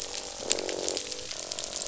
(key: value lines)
label: biophony, croak
recorder: SoundTrap 500